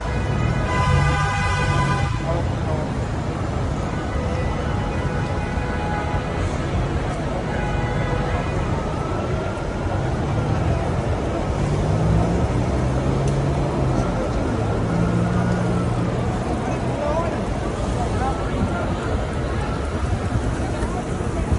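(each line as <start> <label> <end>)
0.0 A car horn sounds repeatedly. 2.5
0.0 People chatting in the background. 21.6
0.0 Many vehicles are driving by chaotically. 21.6
3.8 A car horn sounds repeatedly. 6.5
7.5 A car horn sounds repeatedly. 8.6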